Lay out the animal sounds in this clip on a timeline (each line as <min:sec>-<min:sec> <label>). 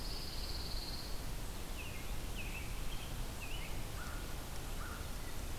0:00.0-0:01.5 Pine Warbler (Setophaga pinus)
0:01.6-0:03.7 American Robin (Turdus migratorius)
0:03.8-0:05.1 American Crow (Corvus brachyrhynchos)